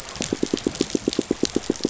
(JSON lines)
{"label": "biophony, pulse", "recorder": "SoundTrap 500"}